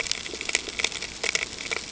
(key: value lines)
label: ambient
recorder: HydroMoth